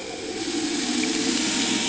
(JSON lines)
{"label": "anthrophony, boat engine", "recorder": "HydroMoth"}